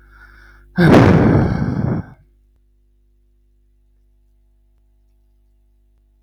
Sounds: Sigh